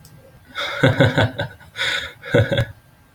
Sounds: Laughter